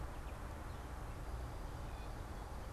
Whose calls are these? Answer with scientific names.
Dumetella carolinensis